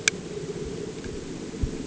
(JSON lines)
{"label": "anthrophony, boat engine", "recorder": "HydroMoth"}